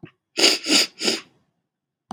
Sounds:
Sniff